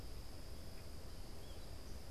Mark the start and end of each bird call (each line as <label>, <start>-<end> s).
American Goldfinch (Spinus tristis), 0.0-2.1 s